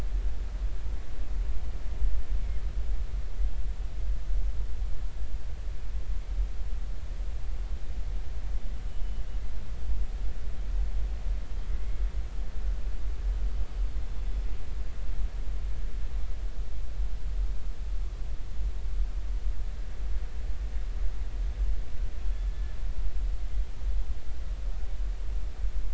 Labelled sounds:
22.2	22.8	killer whale, northern resident, G clan, 1.7 to 3.6 kHz

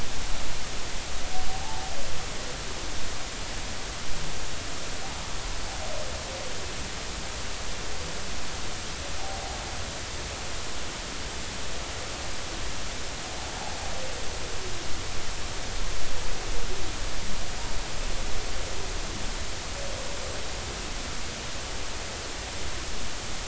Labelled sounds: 1.5	1.8	humpback whale, 0.80 to 0.93 kHz

